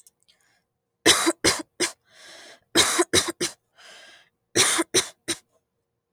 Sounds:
Cough